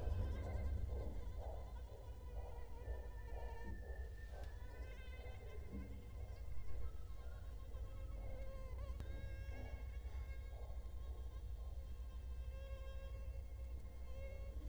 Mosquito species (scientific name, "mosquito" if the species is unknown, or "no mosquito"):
Culex quinquefasciatus